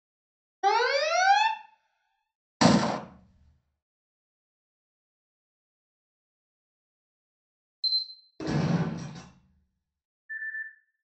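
First, an alarm can be heard. Then there is gunfire. Next, the sound of a camera is audible. Afterwards, gunfire rings out. Following that, you can hear a telephone.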